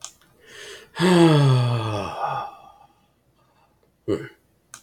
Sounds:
Sigh